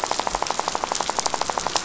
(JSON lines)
{"label": "biophony, rattle", "recorder": "SoundTrap 500"}